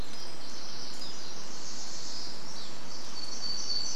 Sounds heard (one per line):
warbler song
Pacific Wren song